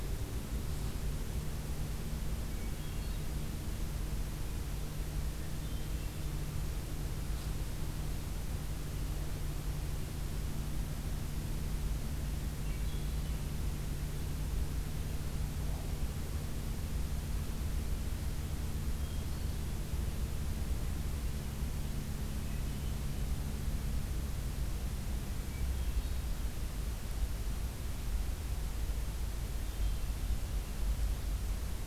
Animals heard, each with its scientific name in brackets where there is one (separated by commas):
Hermit Thrush (Catharus guttatus)